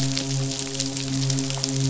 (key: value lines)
label: biophony, midshipman
recorder: SoundTrap 500